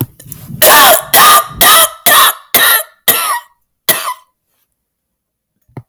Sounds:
Cough